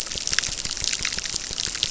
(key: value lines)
label: biophony, crackle
recorder: SoundTrap 600